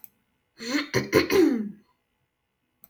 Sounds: Throat clearing